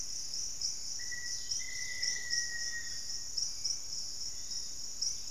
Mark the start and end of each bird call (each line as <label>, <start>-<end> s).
Black-faced Antthrush (Formicarius analis), 0.9-3.4 s
Dusky-capped Greenlet (Pachysylvia hypoxantha), 1.3-2.4 s
Plumbeous Pigeon (Patagioenas plumbea), 1.7-2.4 s
Yellow-margined Flycatcher (Tolmomyias assimilis), 2.6-5.3 s
Hauxwell's Thrush (Turdus hauxwelli), 3.3-5.3 s